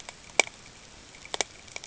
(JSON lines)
{"label": "ambient", "recorder": "HydroMoth"}